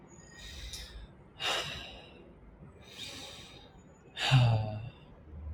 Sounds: Sigh